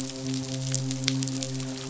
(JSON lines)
{"label": "biophony, midshipman", "recorder": "SoundTrap 500"}